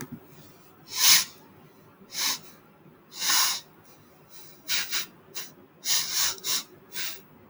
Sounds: Sniff